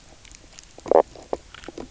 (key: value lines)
label: biophony, knock croak
recorder: SoundTrap 300